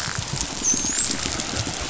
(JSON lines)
{"label": "biophony, dolphin", "recorder": "SoundTrap 500"}